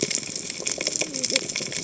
{"label": "biophony, cascading saw", "recorder": "HydroMoth"}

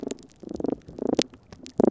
{"label": "biophony", "recorder": "SoundTrap 300"}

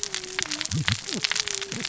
{"label": "biophony, cascading saw", "recorder": "SoundTrap 600 or HydroMoth"}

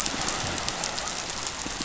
{"label": "biophony", "recorder": "SoundTrap 500"}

